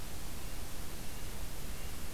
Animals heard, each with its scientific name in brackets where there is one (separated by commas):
Red-breasted Nuthatch (Sitta canadensis)